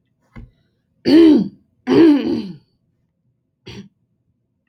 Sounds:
Throat clearing